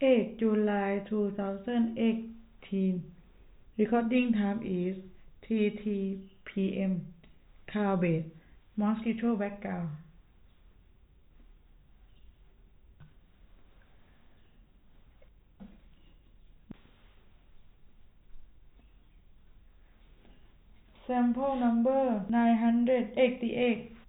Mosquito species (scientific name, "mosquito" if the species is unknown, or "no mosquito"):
no mosquito